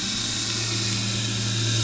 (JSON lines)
{"label": "anthrophony, boat engine", "recorder": "SoundTrap 500"}